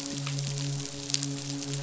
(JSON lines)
{"label": "biophony, midshipman", "recorder": "SoundTrap 500"}